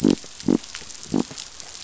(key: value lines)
label: biophony
recorder: SoundTrap 500